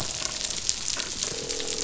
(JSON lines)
{"label": "biophony, croak", "recorder": "SoundTrap 500"}